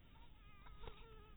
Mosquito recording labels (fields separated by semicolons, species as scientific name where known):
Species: mosquito; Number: one; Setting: cup